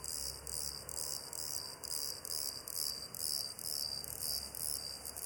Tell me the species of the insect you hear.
Eumodicogryllus bordigalensis